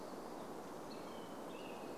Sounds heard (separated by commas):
Hammond's Flycatcher call, American Robin song